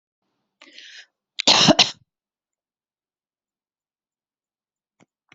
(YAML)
expert_labels:
- quality: good
  cough_type: wet
  dyspnea: false
  wheezing: false
  stridor: false
  choking: false
  congestion: false
  nothing: true
  diagnosis: upper respiratory tract infection
  severity: mild
age: 53
gender: female
respiratory_condition: true
fever_muscle_pain: true
status: symptomatic